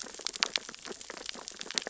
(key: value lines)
label: biophony, sea urchins (Echinidae)
recorder: SoundTrap 600 or HydroMoth